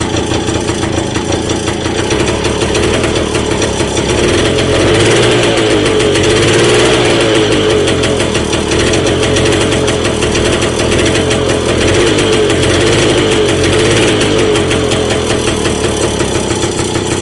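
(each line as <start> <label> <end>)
0.0 An old motorcycle engine rattles while running at idle and low revs. 17.2
4.6 A motorcycle engine rattles at low revs. 14.7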